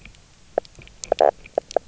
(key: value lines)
label: biophony, knock croak
recorder: SoundTrap 300